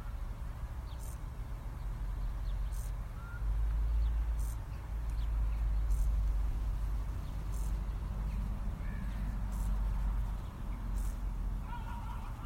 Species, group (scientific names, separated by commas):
Chorthippus brunneus, Orthoptera